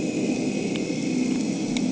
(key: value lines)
label: anthrophony, boat engine
recorder: HydroMoth